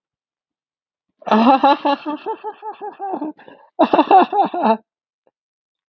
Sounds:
Laughter